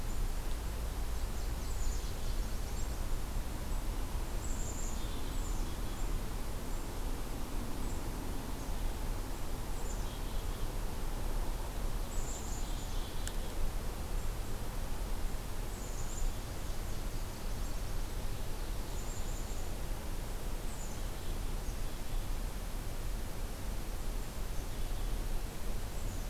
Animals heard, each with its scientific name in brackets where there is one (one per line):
Nashville Warbler (Leiothlypis ruficapilla)
Black-capped Chickadee (Poecile atricapillus)